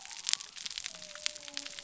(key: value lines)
label: biophony
recorder: SoundTrap 300